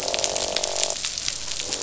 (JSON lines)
{"label": "biophony, croak", "recorder": "SoundTrap 500"}